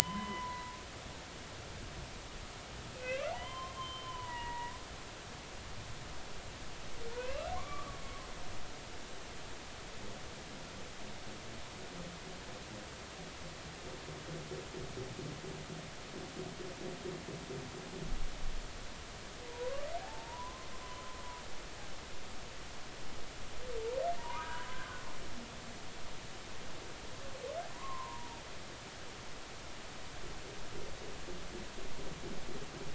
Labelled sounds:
0.0	0.7	humpback whale, 0.90 to 3.1 kHz
3.0	4.7	humpback whale, 0.80 to 3.2 kHz
7.1	8.0	humpback whale, 0.90 to 2.8 kHz
19.5	21.2	humpback whale, 0.80 to 1.2 kHz
24.2	24.9	humpback whale, 0.86 to 1.3 kHz
27.7	28.3	humpback whale, 0.90 to 1.2 kHz

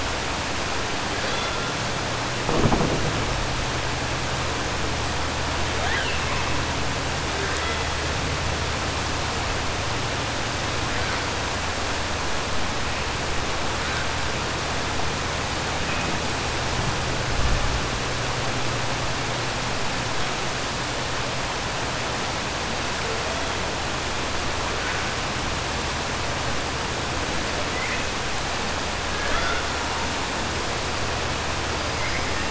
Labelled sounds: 5.7	6.5	killer whale, 0.70 to 3.6 kHz

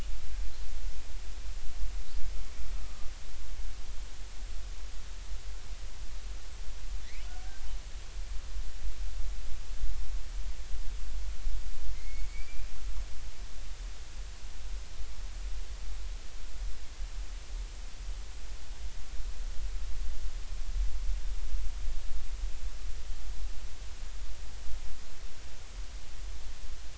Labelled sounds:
2.8	3.1	killer whale, Bigg's (transient), 1.1 to 1.3 kHz
12.0	12.7	killer whale, Bigg's (transient), 2.0 to 2.5 kHz

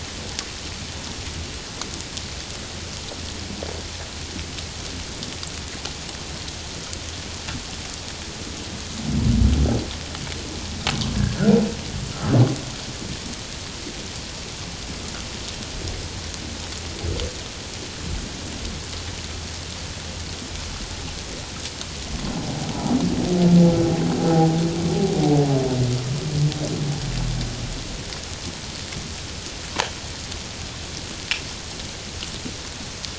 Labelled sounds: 11.1	11.5	humpback whale, 1.3 to 1.8 kHz

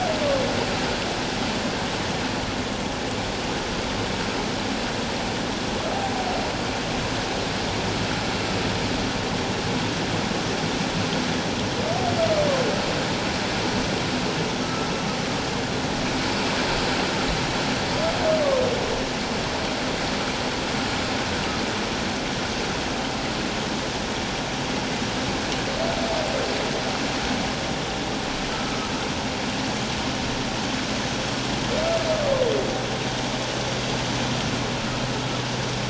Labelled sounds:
14.6	14.9	humpback whale, 1.2 to 1.4 kHz
28.5	28.8	humpback whale, 1.2 to 1.4 kHz

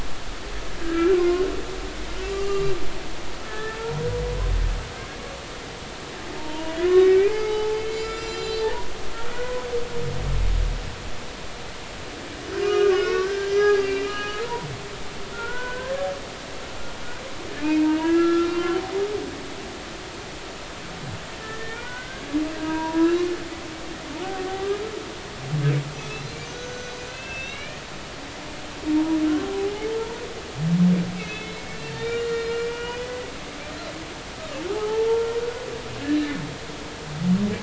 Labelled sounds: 0.8	1.5	humpback whale, 0.99 to 1.7 kHz
2.3	2.7	humpback whale, 1.1 to 2.9 kHz
3.4	4.0	humpback whale, 0.86 to 1.8 kHz
6.4	8.9	humpback whale, 0.80 to 7.2 kHz
9.3	9.7	humpback whale, 0.93 to 1.5 kHz
12.6	14.7	humpback whale, 0.90 to 5.8 kHz
15.3	15.9	humpback whale, 0.86 to 1.6 kHz
17.6	18.8	humpback whale, 0.99 to 3.0 kHz
21.4	22.2	humpback whale, 0.90 to 1.9 kHz
22.5	23.1	humpback whale, 0.90 to 1.7 kHz
26.1	27.8	humpback whale, 1.4 to 6.5 kHz
28.9	29.9	humpback whale, 0.80 to 0.99 kHz
31.2	33.3	humpback whale, 0.93 to 7.1 kHz
34.7	35.4	humpback whale, 0.80 to 1.4 kHz
36.0	36.2	humpback whale, 1.5 to 1.8 kHz

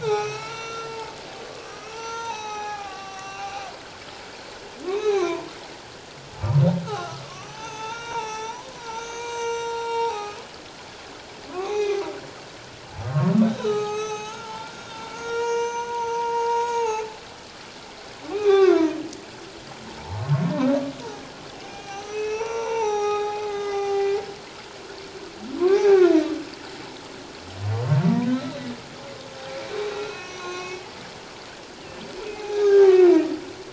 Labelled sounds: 0.0	3.7	humpback whale, 0.78 to 7.8 kHz
4.9	5.5	humpback whale, 0.88 to 4.2 kHz
6.8	10.4	humpback whale, 0.78 to 7.6 kHz
11.5	12.0	humpback whale, 0.78 to 3.9 kHz
13.5	17.1	humpback whale, 0.78 to 7.1 kHz
18.2	18.9	humpback whale, 0.78 to 2.7 kHz
20.1	20.4	humpback whale, 1.0 to 1.1 kHz
21.5	24.2	humpback whale, 0.78 to 7.9 kHz
25.6	26.2	humpback whale, 0.78 to 1.7 kHz
30.0	30.8	humpback whale, 0.97 to 6.6 kHz
32.3	33.2	humpback whale, 0.78 to 3.8 kHz

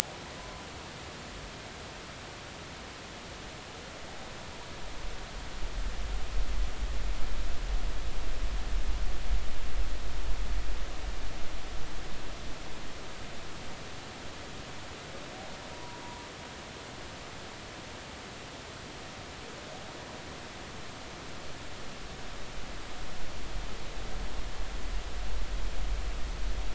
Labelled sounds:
15.7	16.0	humpback whale, 0.90 to 1.1 kHz

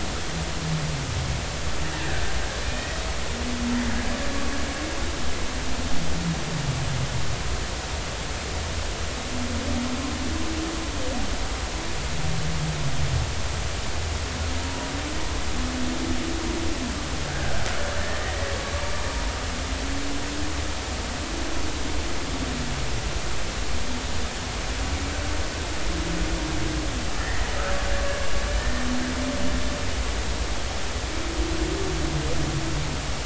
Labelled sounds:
1.9	2.9	killer whale, Bigg's (transient), 1.5 to 2.6 kHz
17.2	18.5	killer whale, Bigg's (transient), 1.4 to 2.0 kHz
27.2	27.5	killer whale, Bigg's (transient), 1.7 to 2.0 kHz
28.6	28.9	killer whale, Bigg's (transient), 1.8 to 1.9 kHz

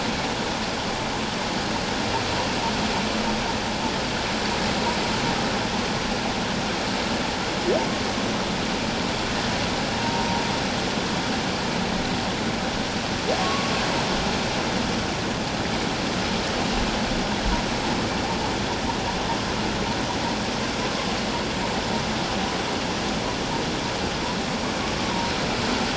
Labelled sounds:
10.0	10.4	humpback whale, 0.88 to 0.97 kHz
13.4	13.7	humpback whale, 1.1 to 1.2 kHz

